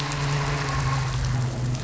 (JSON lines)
{"label": "anthrophony, boat engine", "recorder": "SoundTrap 500"}